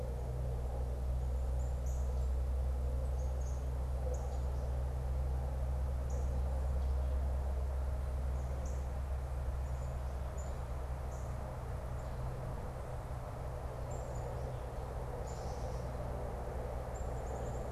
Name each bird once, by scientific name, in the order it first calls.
Cardinalis cardinalis, Poecile atricapillus